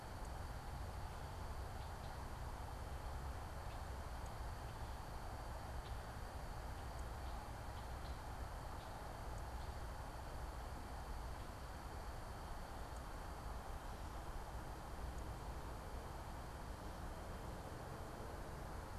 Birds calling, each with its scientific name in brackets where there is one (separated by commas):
Red-winged Blackbird (Agelaius phoeniceus)